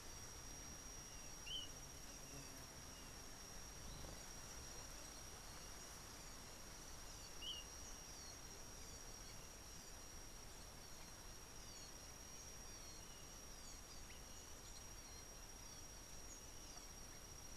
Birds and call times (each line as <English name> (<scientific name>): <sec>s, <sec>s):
Kikuyu White-eye (Zosterops kikuyuensis): 1.6s, 7.5s